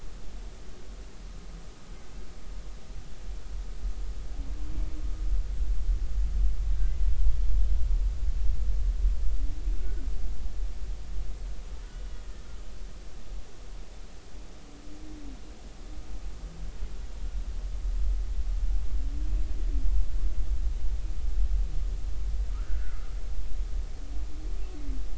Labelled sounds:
9.8	10.1	humpback whale, 1.4 to 1.5 kHz
22.5	23.1	humpback whale, 1.2 to 1.9 kHz

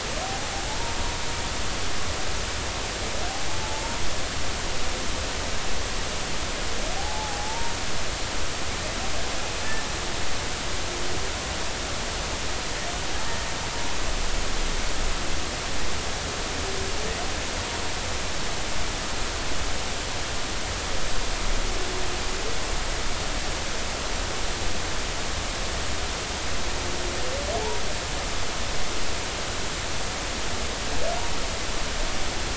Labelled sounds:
0.2	0.5	humpback whale, 0.80 to 0.86 kHz
3.6	4.0	humpback whale, 0.83 to 0.96 kHz
7.0	7.7	humpback whale, 0.80 to 0.99 kHz

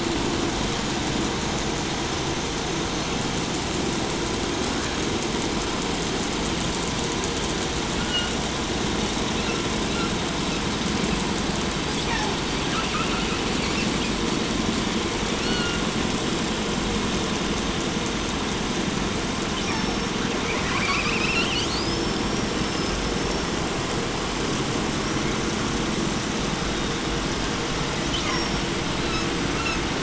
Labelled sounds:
2.8	3.3	killer whale, 3.8 to 4.5 kHz
7.8	8.5	killer whale, 0.96 to 4.8 kHz
8.9	10.6	killer whale, 0.92 to 5.6 kHz
10.9	11.2	killer whale, 1.2 to 4.7 kHz
11.9	12.6	killer whale, southern resident, call S36, 0.64 to 7.9 kHz
12.6	14.3	killer whale, 0.51 to 6.3 kHz
15.3	16.0	killer whale, 0.92 to 6.5 kHz
19.4	20.2	killer whale, southern resident, call S36, 0.71 to 6.1 kHz
20.3	23.7	killer whale, southern resident, call S10, 0.49 to 6.8 kHz
25.0	25.5	killer whale, 1.7 to 6.2 kHz
28.0	28.8	killer whale, southern resident, call S36, 0.73 to 6.7 kHz
29.0	29.8	killer whale, 0.88 to 8.0 kHz

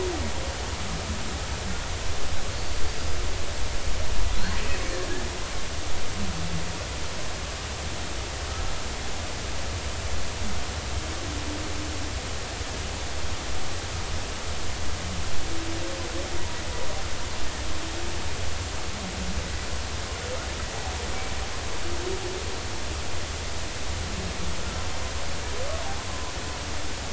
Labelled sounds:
2.5	2.8	killer whale, Bigg's (transient), 4.2 to 4.6 kHz

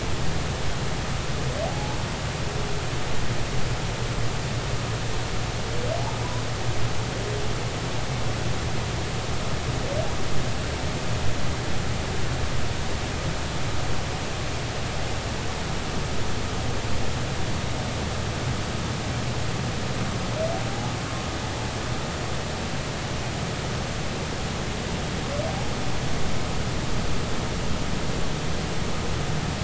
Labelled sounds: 1.6	2.0	humpback whale, 0.80 to 0.93 kHz
20.7	20.9	humpback whale, 0.80 to 0.90 kHz

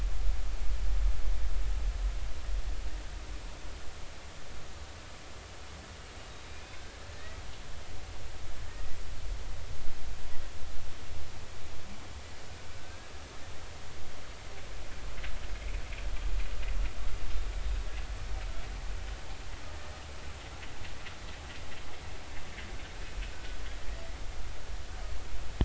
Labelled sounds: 6.4	7.0	humpback whale, 1.5 to 2.6 kHz
8.7	9.0	humpback whale, 1.8 to 2.0 kHz
12.8	13.1	humpback whale, 1.5 to 1.7 kHz
19.7	20.0	humpback whale, 1.8 to 1.9 kHz
23.3	23.6	humpback whale, 1.4 to 1.5 kHz

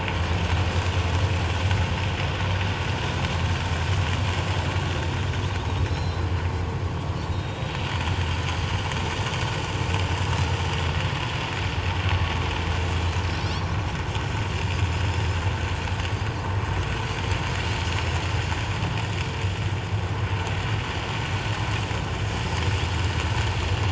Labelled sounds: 5.8	6.3	Pacific white-sided dolphin, 3.8 to 5.5 kHz
7.3	7.9	Pacific white-sided dolphin, 3.7 to 7.7 kHz
13.4	13.8	Pacific white-sided dolphin, 5.2 to 5.7 kHz
17.8	18.2	Pacific white-sided dolphin, 5.2 to 6.9 kHz

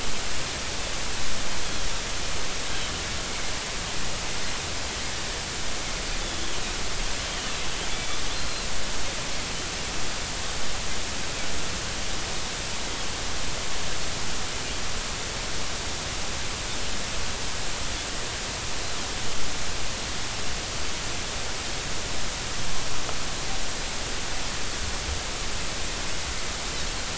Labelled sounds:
1.6	1.9	Pacific white-sided dolphin, 3.1 to 3.4 kHz
6.2	6.5	Pacific white-sided dolphin, 3.4 to 3.5 kHz
7.9	8.2	Pacific white-sided dolphin, 2.2 to 3.5 kHz

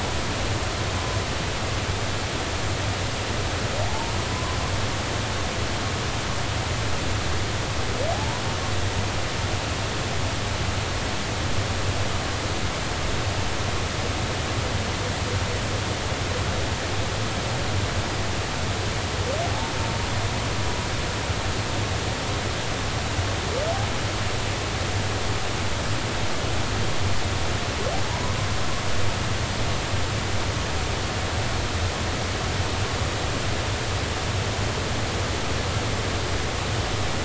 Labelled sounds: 3.9	4.6	humpback whale, 0.80 to 1.2 kHz
8.1	8.4	humpback whale, 0.80 to 1.0 kHz

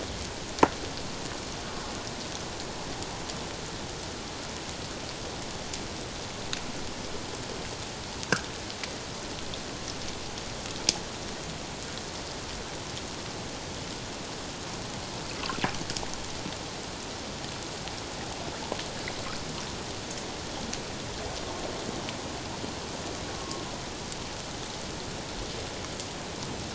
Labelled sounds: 23.4	23.6	humpback whale, 1.0 to 1.1 kHz

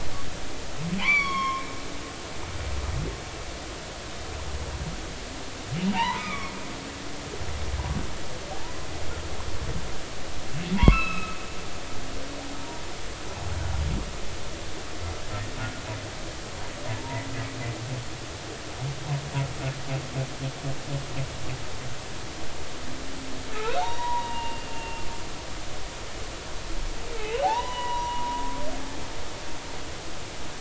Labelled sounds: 1.0	1.7	humpback whale, 0.80 to 5.9 kHz
5.9	6.5	humpback whale, 0.80 to 2.5 kHz
10.7	11.4	humpback whale, 0.80 to 4.1 kHz
13.5	13.8	humpback whale, 0.86 to 0.99 kHz
23.8	25.0	humpback whale, 0.80 to 3.9 kHz
27.1	28.4	humpback whale, 0.80 to 3.0 kHz

